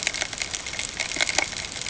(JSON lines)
{"label": "ambient", "recorder": "HydroMoth"}